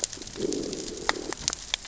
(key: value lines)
label: biophony, growl
recorder: SoundTrap 600 or HydroMoth